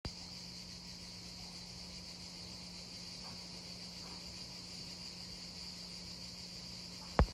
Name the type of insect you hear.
cicada